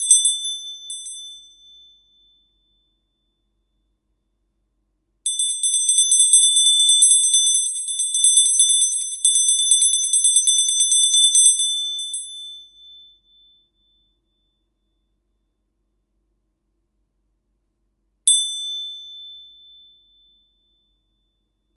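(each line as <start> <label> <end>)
0.0 A bell chimes clearly in a repeating pattern. 1.3
5.2 A bell chimes clearly in a repeating pattern. 14.8
18.2 A bell chimes and the sound fades away. 21.5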